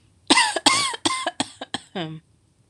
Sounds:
Cough